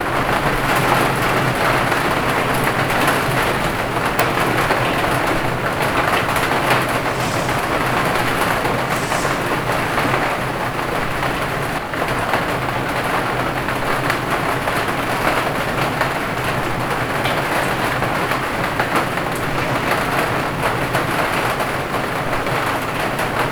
Is the rain falling heavily?
yes